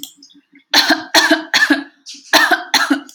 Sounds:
Cough